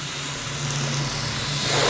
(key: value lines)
label: anthrophony, boat engine
recorder: SoundTrap 500